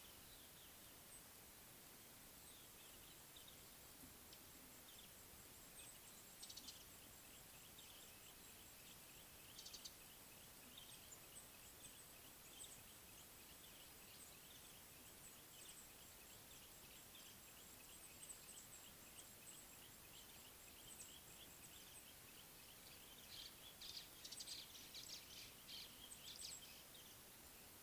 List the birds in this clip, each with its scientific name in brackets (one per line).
Mouse-colored Penduline-Tit (Anthoscopus musculus)
Beautiful Sunbird (Cinnyris pulchellus)
White-browed Sparrow-Weaver (Plocepasser mahali)